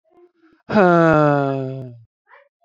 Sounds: Sigh